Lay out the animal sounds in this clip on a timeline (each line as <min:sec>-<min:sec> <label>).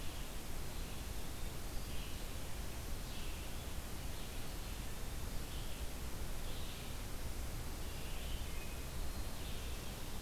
0:00.0-0:10.2 Red-eyed Vireo (Vireo olivaceus)